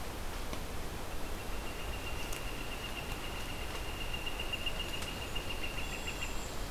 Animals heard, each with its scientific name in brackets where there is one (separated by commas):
Northern Flicker (Colaptes auratus), Golden-crowned Kinglet (Regulus satrapa)